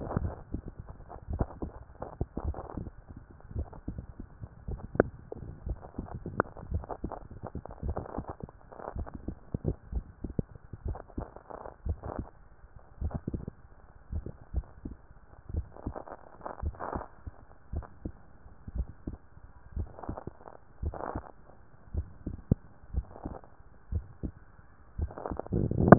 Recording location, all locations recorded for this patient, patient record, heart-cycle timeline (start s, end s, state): tricuspid valve (TV)
pulmonary valve (PV)+tricuspid valve (TV)+mitral valve (MV)
#Age: Child
#Sex: Male
#Height: 148.0 cm
#Weight: 44.4 kg
#Pregnancy status: False
#Murmur: Absent
#Murmur locations: nan
#Most audible location: nan
#Systolic murmur timing: nan
#Systolic murmur shape: nan
#Systolic murmur grading: nan
#Systolic murmur pitch: nan
#Systolic murmur quality: nan
#Diastolic murmur timing: nan
#Diastolic murmur shape: nan
#Diastolic murmur grading: nan
#Diastolic murmur pitch: nan
#Diastolic murmur quality: nan
#Outcome: Normal
#Campaign: 2014 screening campaign
0.00	14.46	unannotated
14.46	14.53	diastole
14.53	14.66	S1
14.66	14.86	systole
14.86	14.96	S2
14.96	15.52	diastole
15.52	15.66	S1
15.66	15.86	systole
15.86	15.96	S2
15.96	16.62	diastole
16.62	16.74	S1
16.74	16.94	systole
16.94	17.04	S2
17.04	17.74	diastole
17.74	17.86	S1
17.86	18.04	systole
18.04	18.14	S2
18.14	18.74	diastole
18.74	18.88	S1
18.88	19.08	systole
19.08	19.16	S2
19.16	19.76	diastole
19.76	19.88	S1
19.88	20.08	systole
20.08	20.18	S2
20.18	20.82	diastole
20.82	20.96	S1
20.96	21.14	systole
21.14	21.24	S2
21.24	21.94	diastole
21.94	25.98	unannotated